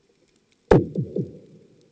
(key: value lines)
label: anthrophony, bomb
recorder: HydroMoth